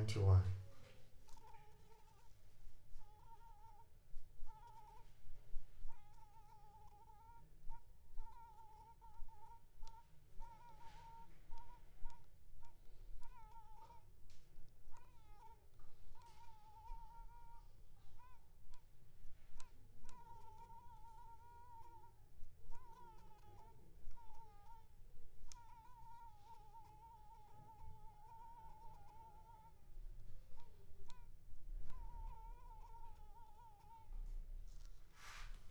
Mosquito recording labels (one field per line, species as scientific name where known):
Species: Culex pipiens complex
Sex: female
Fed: blood-fed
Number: one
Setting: cup